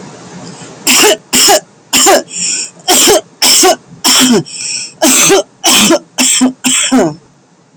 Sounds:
Cough